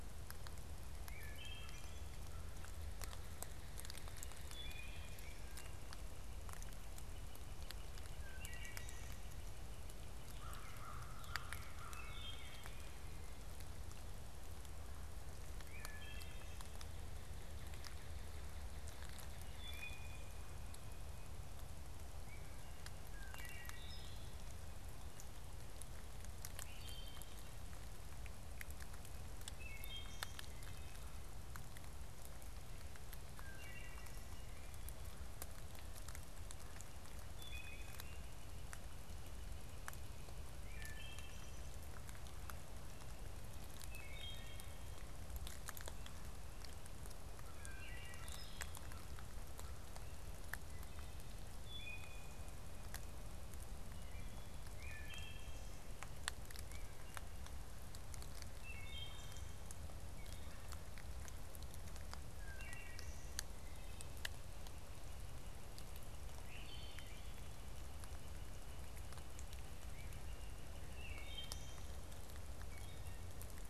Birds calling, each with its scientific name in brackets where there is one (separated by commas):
Northern Flicker (Colaptes auratus), Wood Thrush (Hylocichla mustelina), American Crow (Corvus brachyrhynchos)